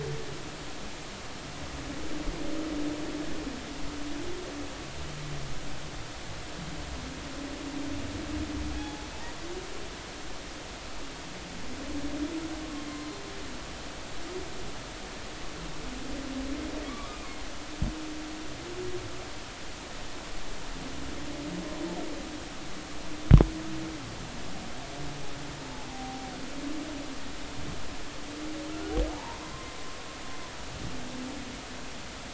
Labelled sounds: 8.8	9.1	humpback whale, 0.80 to 0.90 kHz
16.9	17.2	humpback whale, 1.1 to 1.3 kHz
25.9	26.3	humpback whale, 0.80 to 0.83 kHz
29.1	29.8	humpback whale, 0.83 to 1.1 kHz

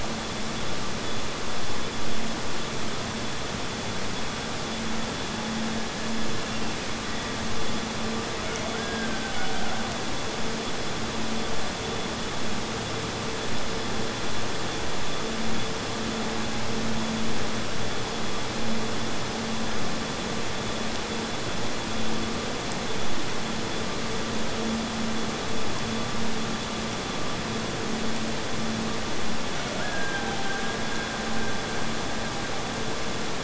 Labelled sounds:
6.3	7.6	killer whale, Bigg's (transient), Gulf of Alaska transient, 1.7 to 2.8 kHz
8.6	10.0	killer whale, Bigg's (transient), Gulf of Alaska transient, 0.57 to 1.8 kHz
29.4	33.2	killer whale, Bigg's (transient), Gulf of Alaska transient, 0.53 to 1.8 kHz

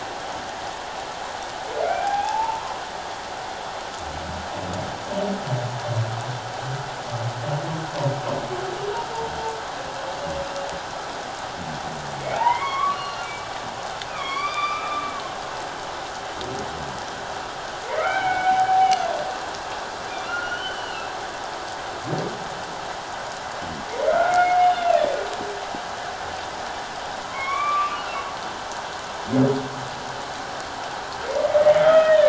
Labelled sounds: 1.8	2.6	humpback whale, 0.78 to 2.7 kHz
12.3	15.1	humpback whale, 0.78 to 5.0 kHz
17.8	19.0	humpback whale, 0.78 to 2.4 kHz
20.3	21.1	humpback whale, 1.3 to 5.9 kHz
24.0	25.0	humpback whale, 1.2 to 4.4 kHz
27.2	28.0	humpback whale, 0.97 to 3.6 kHz
31.8	32.2	humpback whale, 1.2 to 3.2 kHz

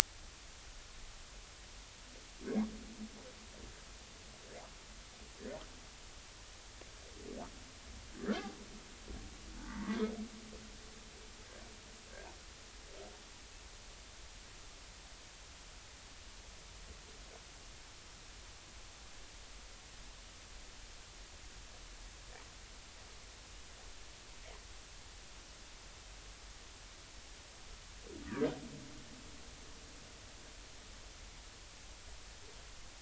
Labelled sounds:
9.9	10.1	humpback whale, 2.1 to 2.2 kHz

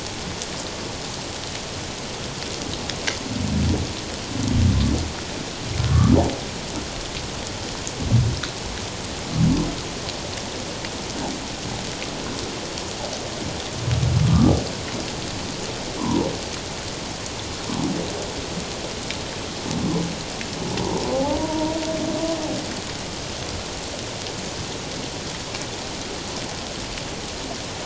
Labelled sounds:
5.9	6.2	humpback whale, 1.0 to 1.3 kHz
16.0	16.3	humpback whale, 0.84 to 1.2 kHz
21.4	21.8	humpback whale, 0.88 to 1.0 kHz

